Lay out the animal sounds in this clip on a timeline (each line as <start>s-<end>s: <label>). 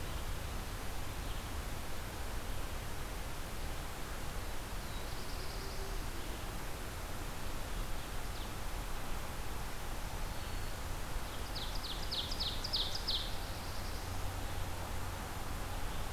0.0s-16.1s: Red-eyed Vireo (Vireo olivaceus)
4.6s-6.1s: Black-throated Blue Warbler (Setophaga caerulescens)
11.2s-13.3s: Ovenbird (Seiurus aurocapilla)
12.8s-14.3s: Black-throated Blue Warbler (Setophaga caerulescens)